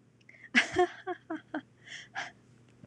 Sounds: Laughter